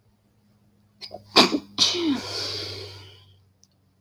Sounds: Sneeze